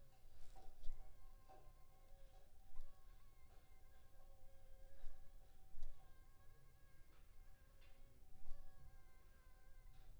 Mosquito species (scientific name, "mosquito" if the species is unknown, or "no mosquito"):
Anopheles funestus s.s.